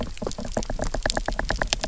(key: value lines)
label: biophony, knock
recorder: SoundTrap 300